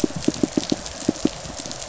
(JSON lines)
{"label": "biophony, pulse", "recorder": "SoundTrap 500"}